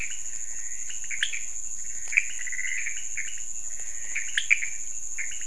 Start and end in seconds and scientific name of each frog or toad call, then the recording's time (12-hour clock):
0.0	5.4	Leptodactylus podicipinus
0.0	5.4	Pithecopus azureus
3.6	4.5	Physalaemus albonotatus
12:15am